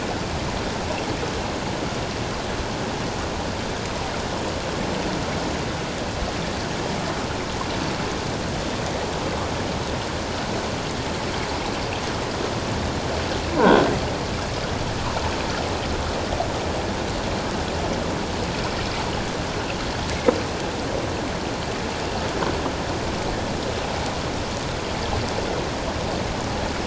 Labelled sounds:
13.6	13.9	croaking sound likely from a nearby submerged object, 1.4 to 1.6 kHz

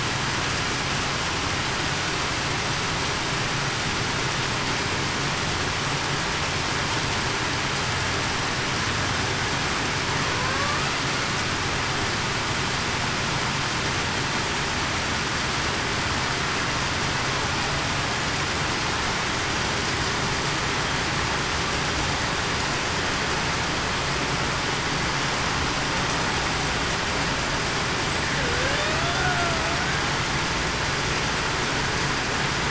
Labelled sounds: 28.4	29.2	killer whale, Bigg's (transient), 0.45 to 0.70 kHz

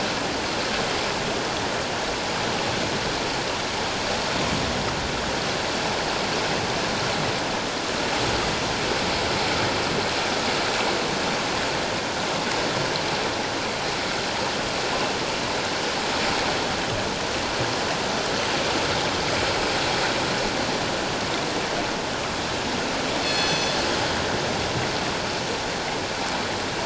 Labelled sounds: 23.2	23.8	killer whale, northern resident, G clan, call N24ii, 2.5 to 6.1 kHz

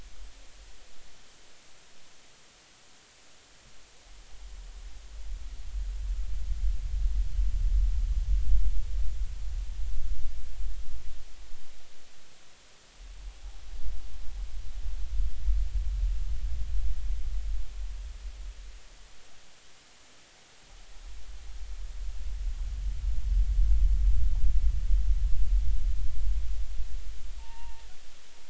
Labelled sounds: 27.4	27.8	humpback whale, 0.83 to 2.8 kHz

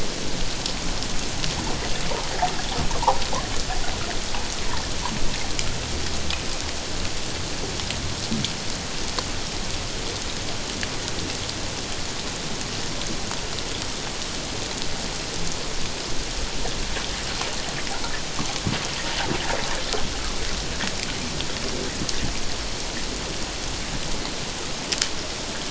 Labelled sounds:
2.9	3.2	water noise, 0.78 to 1.2 kHz

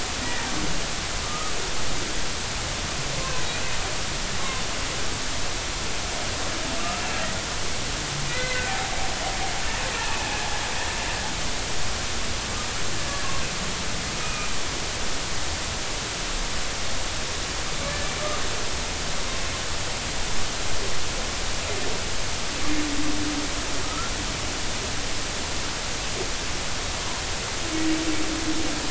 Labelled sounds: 0.2	1.6	humpback whale, 1.2 to 2.0 kHz
3.2	3.4	humpback whale, 0.96 to 1.1 kHz
8.3	8.6	humpback whale, 1.9 to 2.1 kHz
14.2	14.5	humpback whale, 2.2 to 2.5 kHz
23.8	24.1	humpback whale, 1.2 to 1.5 kHz

